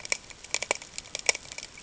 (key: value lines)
label: ambient
recorder: HydroMoth